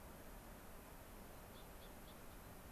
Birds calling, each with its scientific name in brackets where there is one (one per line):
unidentified bird